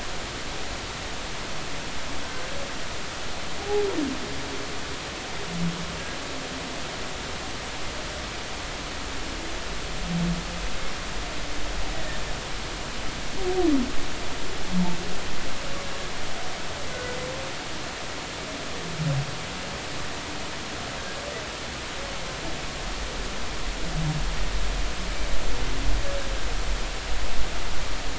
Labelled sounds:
3.6	3.8	humpback whale, 0.80 to 0.90 kHz
16.9	17.2	humpback whale, 1.4 to 1.5 kHz

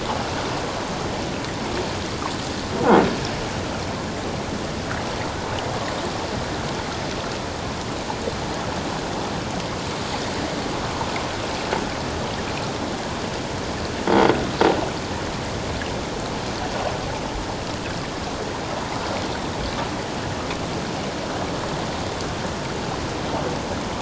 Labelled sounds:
14.1	14.3	croaking sound likely from a nearby submerged object, 3.2 to 3.4 kHz

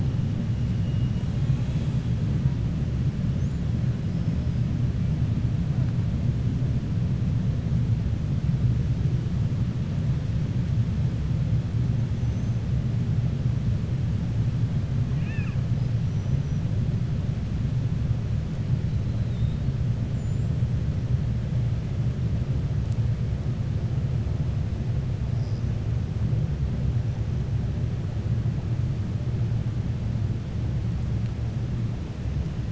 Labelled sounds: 4.1	4.6	killer whale, 4.9 to 5.4 kHz
12.1	12.6	killer whale, 5.9 to 6.8 kHz
15.1	15.6	killer whale, 1.1 to 3.6 kHz

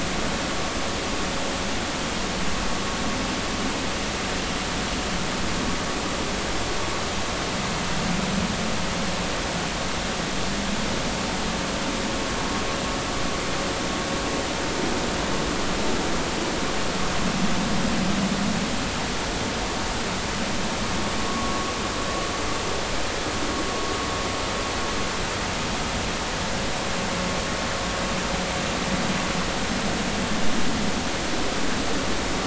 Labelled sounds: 21.3	21.7	vessel noise, 1.1 to 1.2 kHz

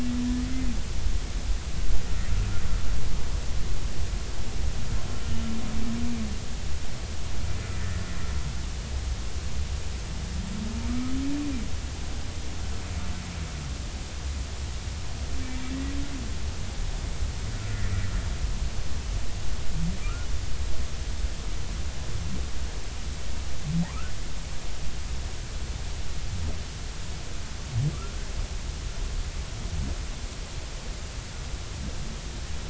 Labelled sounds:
10.9	11.1	humpback whale, 1.2 to 1.3 kHz
20.0	20.3	humpback whale, 1.2 to 1.5 kHz
23.8	24.1	humpback whale, 0.80 to 1.6 kHz
27.9	28.2	humpback whale, 1.1 to 1.4 kHz

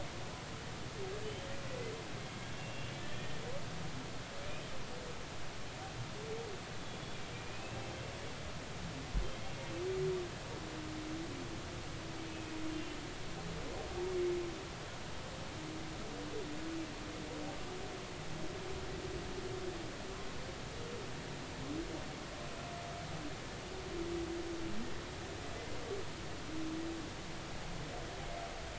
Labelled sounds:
2.6	3.4	humpback whale, 1.8 to 2.9 kHz
6.8	7.8	humpback whale, 2.3 to 3.5 kHz
12.7	13.0	humpback whale, 2.7 to 2.8 kHz

